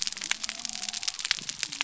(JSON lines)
{"label": "biophony", "recorder": "SoundTrap 300"}